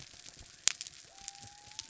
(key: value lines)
label: biophony
recorder: SoundTrap 300

label: anthrophony, mechanical
recorder: SoundTrap 300